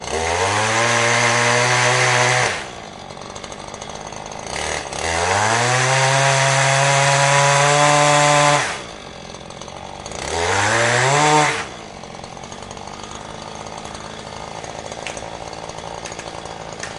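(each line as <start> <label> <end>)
0.0 A woodworker is cutting wood with a chainsaw. 2.7
2.7 A chainsaw motor running idle. 4.5
4.5 A woodworker is cutting wood with a chainsaw. 8.9
8.9 A chainsaw engine running idle. 10.2
10.2 A woodworker is cutting wood with a chainsaw. 11.8
11.8 A chainsaw motor idling. 17.0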